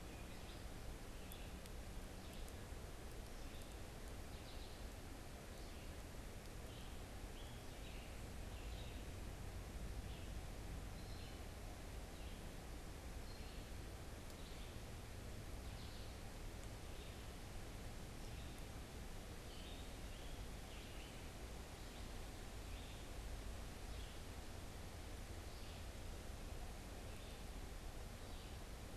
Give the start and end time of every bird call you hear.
0.0s-28.8s: Red-eyed Vireo (Vireo olivaceus)
19.2s-21.5s: Scarlet Tanager (Piranga olivacea)

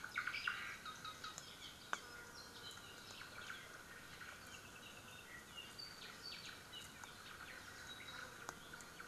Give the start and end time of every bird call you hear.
0.0s-0.8s: Omao (Myadestes obscurus)
0.7s-2.6s: Apapane (Himatione sanguinea)
4.4s-6.7s: Apapane (Himatione sanguinea)

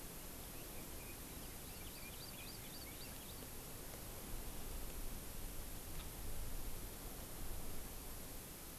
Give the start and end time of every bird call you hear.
0.5s-3.5s: Red-billed Leiothrix (Leiothrix lutea)
1.3s-3.5s: Hawaii Amakihi (Chlorodrepanis virens)
5.9s-6.2s: Red-billed Leiothrix (Leiothrix lutea)

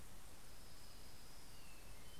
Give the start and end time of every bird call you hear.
0.0s-2.2s: Orange-crowned Warbler (Leiothlypis celata)
1.2s-2.2s: Hermit Thrush (Catharus guttatus)

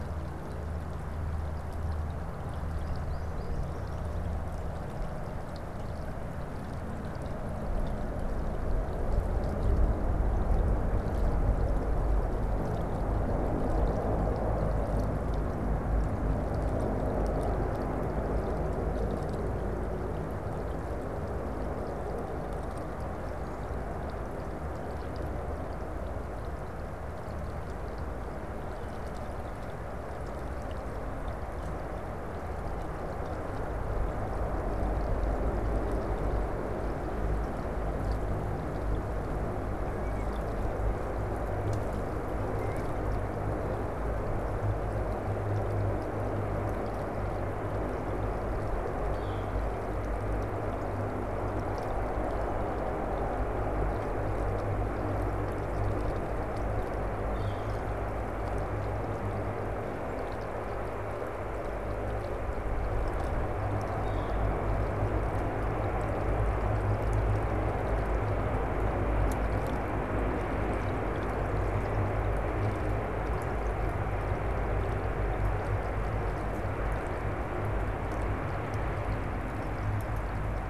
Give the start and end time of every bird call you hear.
49.0s-49.5s: Northern Flicker (Colaptes auratus)
57.1s-57.9s: Northern Flicker (Colaptes auratus)
63.8s-64.5s: Northern Flicker (Colaptes auratus)

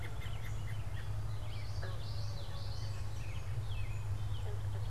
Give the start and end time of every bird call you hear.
0.0s-4.9s: American Robin (Turdus migratorius)
1.2s-3.2s: Common Yellowthroat (Geothlypis trichas)

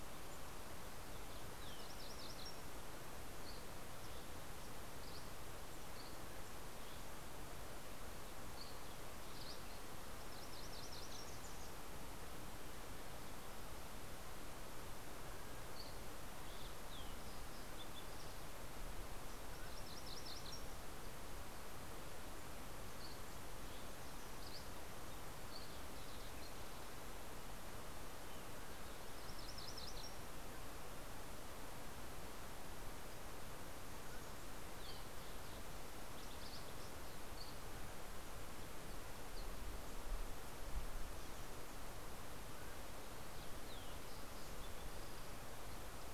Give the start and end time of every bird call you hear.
1.0s-2.9s: MacGillivray's Warbler (Geothlypis tolmiei)
3.3s-9.7s: Dusky Flycatcher (Empidonax oberholseri)
9.9s-12.0s: MacGillivray's Warbler (Geothlypis tolmiei)
15.3s-17.4s: Dusky Flycatcher (Empidonax oberholseri)
19.3s-21.3s: MacGillivray's Warbler (Geothlypis tolmiei)
22.7s-25.8s: Dusky Flycatcher (Empidonax oberholseri)
28.6s-30.6s: MacGillivray's Warbler (Geothlypis tolmiei)
33.5s-37.2s: Fox Sparrow (Passerella iliaca)
37.1s-40.0s: Dusky Flycatcher (Empidonax oberholseri)
42.2s-43.1s: Mountain Quail (Oreortyx pictus)

